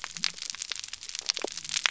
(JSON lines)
{"label": "biophony", "recorder": "SoundTrap 300"}